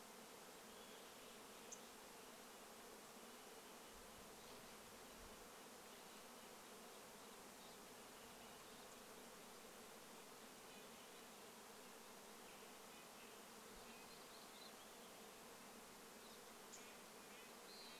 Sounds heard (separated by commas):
unidentified sound, Red-breasted Nuthatch song, Western Wood-Pewee song, Western Tanager song, insect buzz, MacGillivray's Warbler song, Olive-sided Flycatcher song, unidentified bird chip note